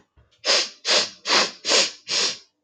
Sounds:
Sniff